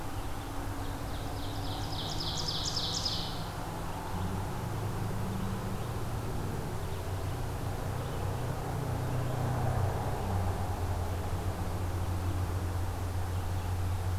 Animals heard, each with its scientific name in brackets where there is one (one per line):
Red-eyed Vireo (Vireo olivaceus)
Ovenbird (Seiurus aurocapilla)